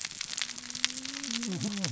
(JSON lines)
{"label": "biophony, cascading saw", "recorder": "SoundTrap 600 or HydroMoth"}